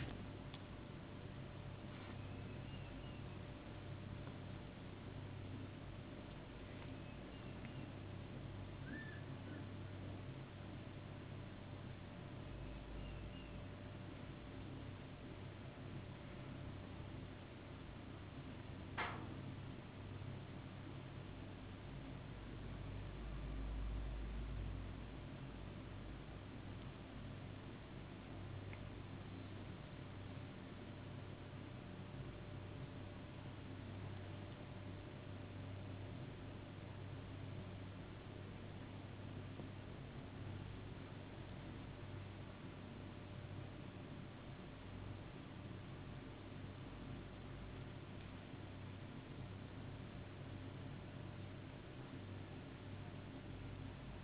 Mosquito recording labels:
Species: no mosquito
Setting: insect culture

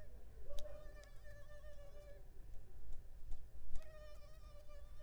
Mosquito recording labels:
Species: Culex pipiens complex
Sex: female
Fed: unfed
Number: one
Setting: cup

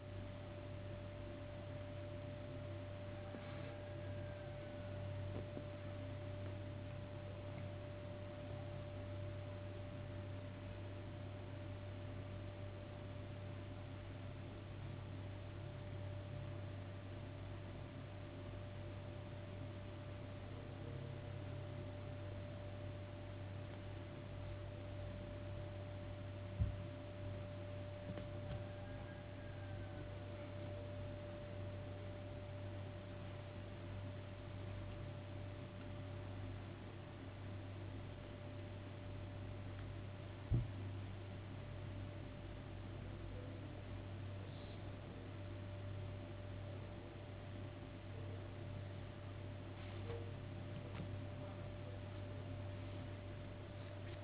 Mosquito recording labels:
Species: no mosquito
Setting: insect culture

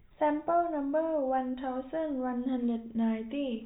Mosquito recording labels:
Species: no mosquito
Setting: cup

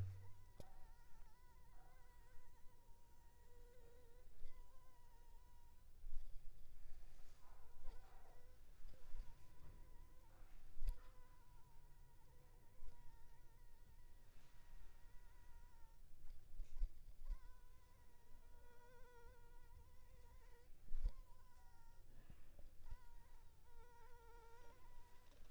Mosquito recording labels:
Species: Anopheles funestus s.l.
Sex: female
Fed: blood-fed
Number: one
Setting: cup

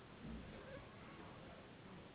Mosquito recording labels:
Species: Anopheles gambiae s.s.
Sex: female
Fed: unfed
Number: one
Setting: insect culture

